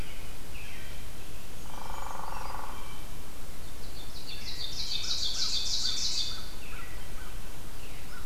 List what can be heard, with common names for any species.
American Crow, American Robin, Hairy Woodpecker, Blue Jay, Brown Creeper, Ovenbird